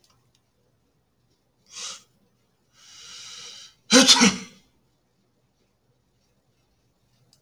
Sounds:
Sneeze